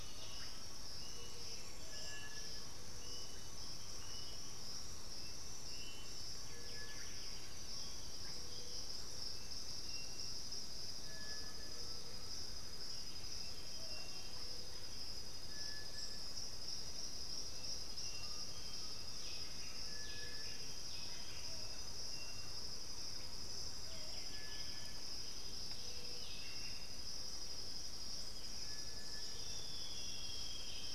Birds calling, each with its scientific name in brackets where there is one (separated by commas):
Bluish-fronted Jacamar (Galbula cyanescens), Buff-throated Saltator (Saltator maximus), Russet-backed Oropendola (Psarocolius angustifrons), Undulated Tinamou (Crypturellus undulatus), Striped Cuckoo (Tapera naevia), Chestnut-winged Foliage-gleaner (Dendroma erythroptera), Plumbeous Pigeon (Patagioenas plumbea), White-winged Becard (Pachyramphus polychopterus), Thrush-like Wren (Campylorhynchus turdinus)